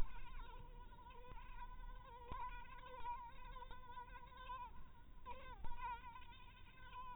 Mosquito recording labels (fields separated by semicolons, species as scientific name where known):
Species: mosquito; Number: one; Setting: cup